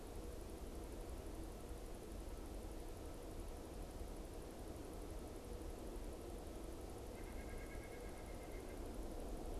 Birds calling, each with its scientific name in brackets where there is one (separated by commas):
White-breasted Nuthatch (Sitta carolinensis)